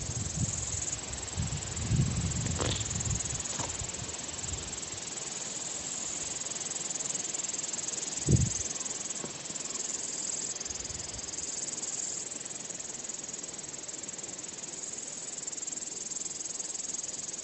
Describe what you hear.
Tettigonia cantans, an orthopteran